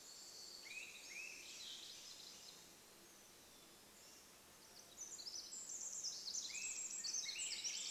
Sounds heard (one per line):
Brown Creeper song
Black-capped Chickadee song
Swainson's Thrush song
insect buzz
Pacific Wren song
Swainson's Thrush call